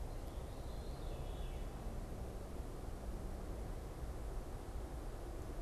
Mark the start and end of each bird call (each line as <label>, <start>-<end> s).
Veery (Catharus fuscescens), 0.0-5.6 s